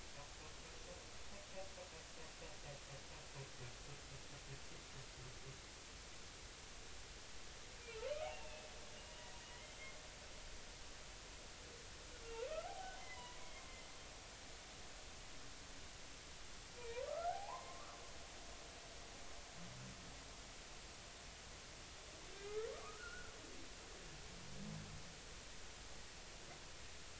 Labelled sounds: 8.3	8.7	humpback whale, 2.5 to 2.8 kHz
9.0	9.3	humpback whale, 2.8 to 2.9 kHz
12.6	13.6	humpback whale, 0.80 to 4.1 kHz
16.8	18.0	humpback whale, 0.80 to 2.6 kHz
22.5	23.3	humpback whale, 1.1 to 1.5 kHz

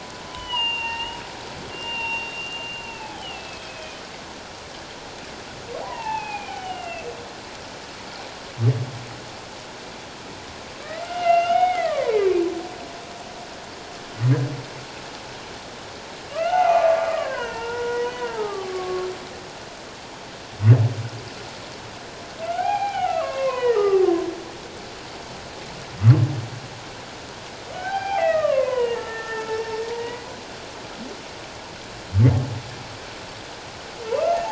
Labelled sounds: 0.4	4.0	humpback whale, 0.78 to 6.6 kHz
5.8	7.1	humpback whale, 0.78 to 3.2 kHz
10.8	12.2	humpback whale, 0.81 to 3.0 kHz
16.3	19.1	humpback whale, 0.78 to 3.0 kHz
22.5	24.1	humpback whale, 0.78 to 3.0 kHz
27.7	30.3	humpback whale, 0.78 to 5.5 kHz

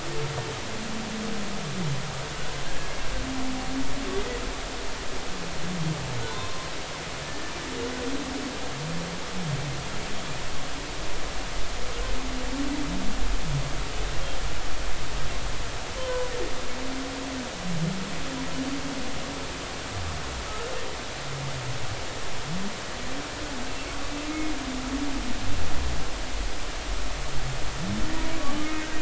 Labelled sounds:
2.7	2.9	humpback whale, 1.6 to 1.7 kHz
6.3	6.7	humpback whale, 0.86 to 1.1 kHz
7.2	7.5	humpback whale, 1.7 to 1.8 kHz
16.0	16.3	humpback whale, 0.80 to 1.1 kHz
28.6	28.8	humpback whale, 1.2 to 1.3 kHz

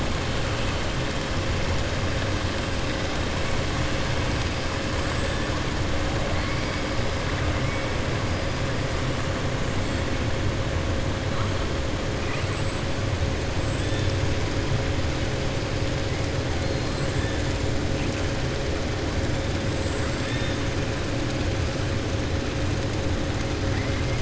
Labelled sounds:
20.2	20.6	killer whale, 1.3 to 3.7 kHz

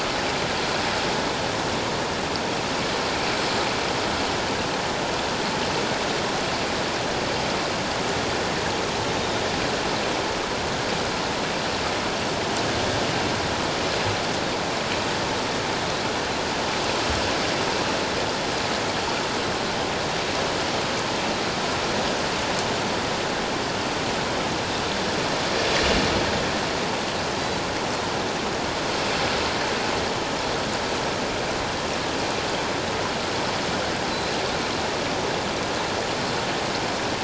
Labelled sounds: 34.1	34.4	Pacific white-sided dolphin, 3.9 to 4.2 kHz

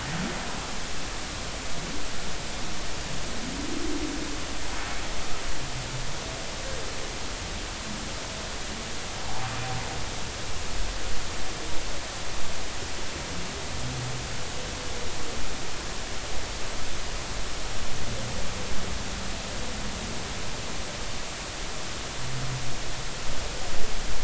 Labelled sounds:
9.2	9.5	humpback whale, 0.80 to 1.0 kHz

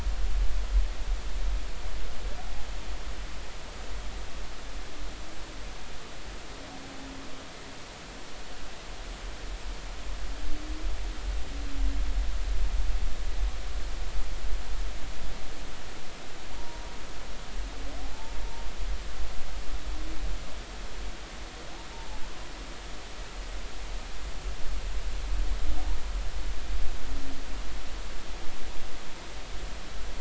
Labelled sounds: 18.0	18.4	humpback whale, 0.80 to 0.93 kHz

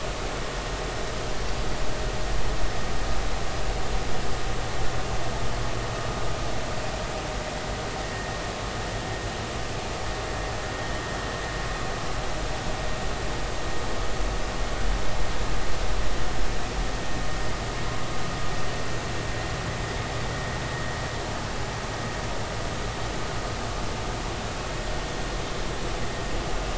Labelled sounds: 8.1	8.4	vessel noise, 1.8 to 1.9 kHz

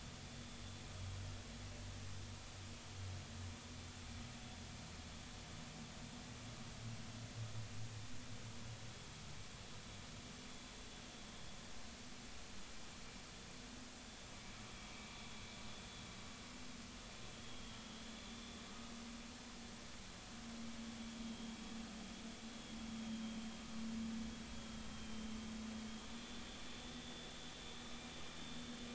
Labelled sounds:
14.9	15.2	vessel noise, 2.2 to 2.5 kHz
17.4	17.7	vessel noise, 3.2 to 3.4 kHz
25.0	25.3	vessel noise, 3.1 to 3.2 kHz
26.0	27.3	vessel noise, 3.3 to 3.6 kHz

